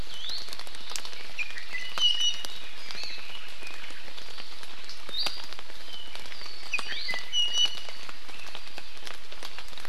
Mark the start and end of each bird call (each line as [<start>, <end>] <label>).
[0.08, 0.38] Iiwi (Drepanis coccinea)
[1.38, 2.68] Iiwi (Drepanis coccinea)
[2.88, 3.28] Hawaii Amakihi (Chlorodrepanis virens)
[5.08, 5.58] Iiwi (Drepanis coccinea)
[6.68, 8.08] Iiwi (Drepanis coccinea)